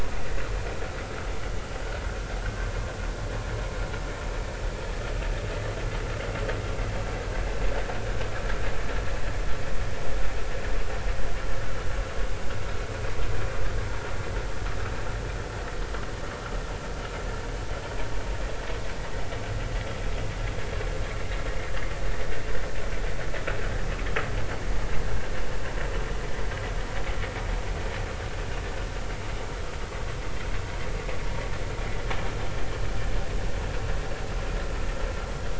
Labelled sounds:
2.4	2.7	vessel noise, 1.4 to 1.6 kHz

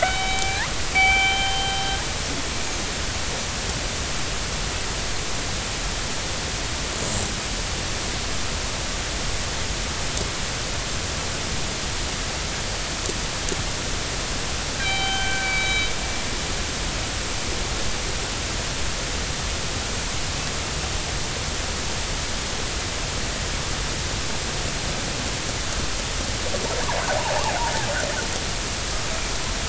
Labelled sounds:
0.0	1.8	killer whale, northern resident, G clan, 0.80 to 3.9 kHz
14.8	15.9	killer whale, northern resident, G clan, 0.80 to 4.0 kHz

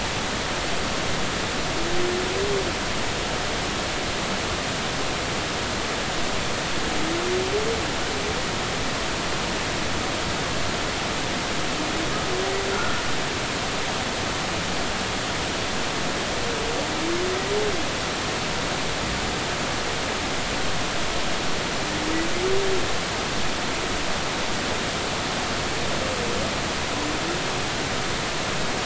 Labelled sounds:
12.7	13.0	humpback whale, 1.3 to 1.5 kHz

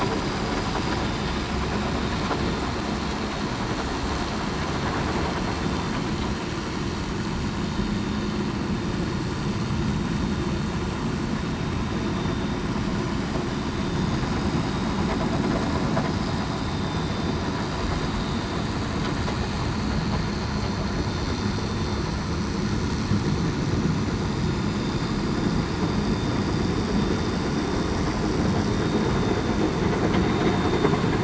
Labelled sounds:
16.6	17.3	vessel noise, 3.56 to 3.63 kHz

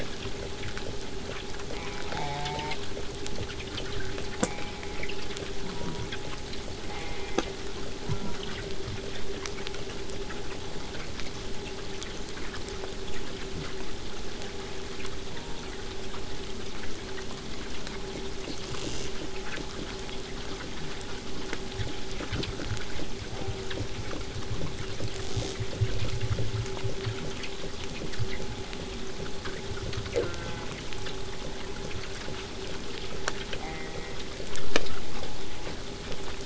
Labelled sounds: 1.7	2.8	killer whale, southern resident, J pod, call S04, 0.18 to 8.0 kHz
4.4	5.1	killer whale, southern resident, J pod, call S04, 0.18 to 2.7 kHz
5.6	6.1	killer whale, southern resident, J pod, call S04, 0.33 to 2.3 kHz
6.9	7.6	killer whale, southern resident, J pod, call S04, 0.33 to 3.6 kHz
8.0	8.7	killer whale, southern resident, J pod, call S04, 0.41 to 2.2 kHz
14.3	14.8	killer whale, southern resident, J pod, call S04, 0.41 to 1.9 kHz
15.3	15.8	killer whale, southern resident, J pod, call S04, 0.15 to 2.2 kHz
18.6	19.1	killer whale, southern resident, rasp, 0.29 to 8.0 kHz
25.1	25.6	killer whale, southern resident, rasp, 0.18 to 8.0 kHz
30.1	30.8	killer whale, southern resident, J pod, call S04, 0.18 to 2.2 kHz
33.6	34.2	killer whale, southern resident, J pod, call S04, 0.50 to 2.5 kHz

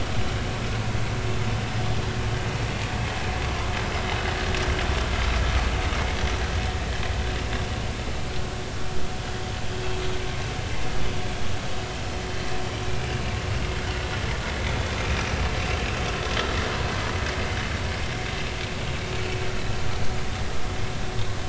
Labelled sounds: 8.3	8.6	vessel noise, 1.3 to 1.5 kHz

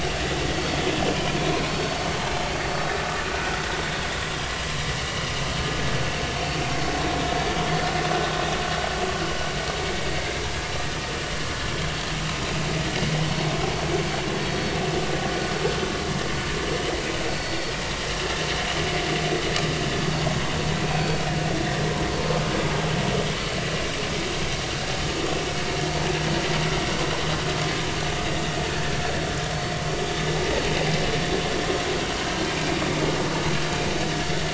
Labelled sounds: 0.5	1.4	vessel noise, 2.3 to 3.5 kHz
1.7	1.9	vessel noise, 4.4 to 4.5 kHz
5.1	5.3	vessel noise, 2.8 to 3.0 kHz
7.5	7.8	vessel noise, 3.2 to 3.4 kHz
10.1	10.4	vessel noise, 2.0 to 2.2 kHz
14.4	14.7	vessel noise, 3.2 to 3.3 kHz
17.3	17.6	vessel noise, 4.4 to 4.5 kHz
23.4	23.6	vessel noise, 4.38 to 4.45 kHz
28.6	28.9	vessel noise, 1.6 to 1.9 kHz

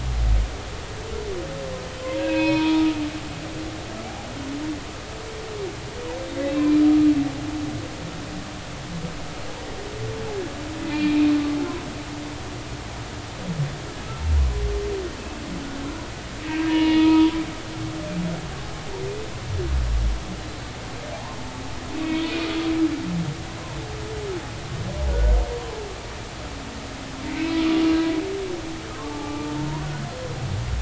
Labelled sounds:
2.0	3.6	humpback whale, 0.90 to 4.2 kHz
6.4	6.8	humpback whale, 2.3 to 2.7 kHz
10.9	11.3	humpback whale, 2.2 to 4.3 kHz
16.5	17.3	humpback whale, 0.90 to 3.0 kHz
21.1	22.2	humpback whale, 0.80 to 2.7 kHz
25.1	25.4	humpback whale, 1.4 to 1.6 kHz
27.3	27.6	humpback whale, 2.2 to 2.4 kHz
29.0	29.5	humpback whale, 0.80 to 1.2 kHz

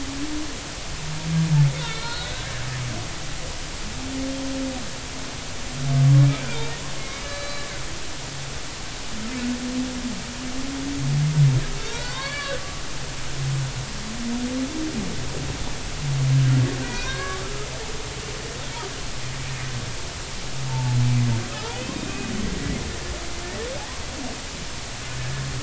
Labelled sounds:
1.8	2.5	humpback whale, 1.3 to 4.4 kHz
6.5	7.6	humpback whale, 0.83 to 4.7 kHz
11.8	12.6	humpback whale, 0.86 to 4.6 kHz
16.8	17.7	humpback whale, 0.96 to 2.6 kHz
20.7	22.3	humpback whale, 0.83 to 2.7 kHz

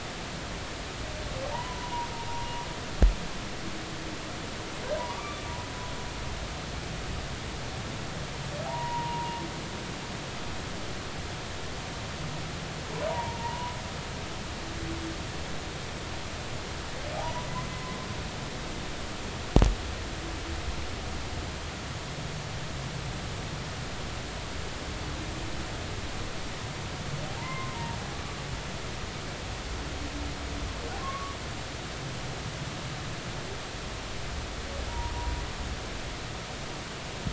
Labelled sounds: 1.5	2.1	humpback whale, 0.83 to 1.1 kHz
5.0	5.4	humpback whale, 0.90 to 1.2 kHz
8.7	9.4	humpback whale, 0.80 to 1.0 kHz
13.1	13.7	humpback whale, 0.86 to 1.0 kHz
17.2	17.9	humpback whale, 0.80 to 1.1 kHz
27.4	27.8	humpback whale, 0.90 to 2.1 kHz
31.0	31.4	humpback whale, 1.0 to 1.2 kHz
34.9	35.1	humpback whale, 0.86 to 1.0 kHz

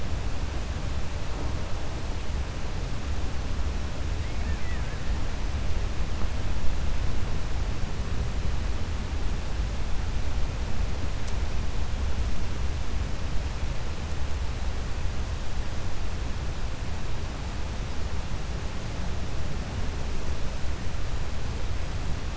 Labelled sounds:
4.2	4.9	killer whale, Bigg's (transient), 1.5 to 2.7 kHz

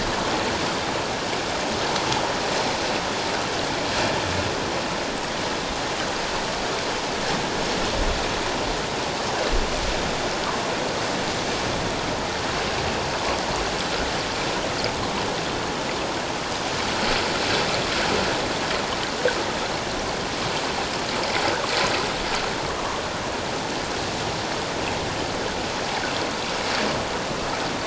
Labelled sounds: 22.8	23.0	water noise, 1.0 to 1.3 kHz

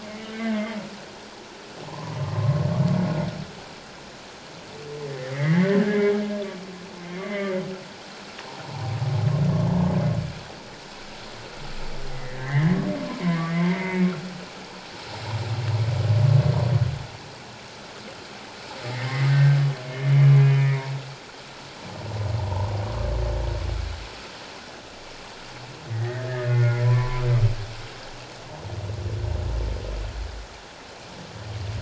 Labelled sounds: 0.3	0.6	humpback whale, 1.5 to 1.6 kHz
1.8	2.2	humpback whale, 0.78 to 1.2 kHz
5.1	6.1	humpback whale, 1.5 to 2.2 kHz
7.0	7.5	humpback whale, 1.9 to 2.2 kHz
12.1	12.8	humpback whale, 1.5 to 2.1 kHz
13.1	14.0	humpback whale, 0.88 to 2.2 kHz
18.8	20.1	humpback whale, 1.5 to 2.2 kHz
20.4	20.9	humpback whale, 2.1 to 2.5 kHz
22.4	22.7	humpback whale, 0.81 to 1.1 kHz
25.9	27.2	humpback whale, 0.88 to 2.3 kHz

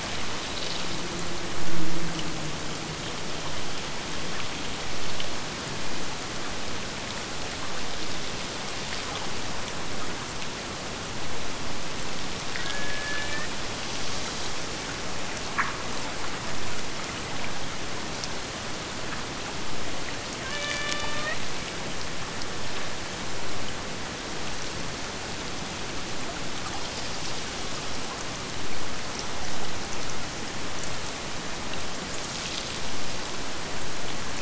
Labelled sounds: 12.5	13.6	killer whale, Bigg's (transient), AT1 transient, 0.39 to 3.7 kHz
20.4	21.4	killer whale, Bigg's (transient), AT1 transient, 0.51 to 4.9 kHz

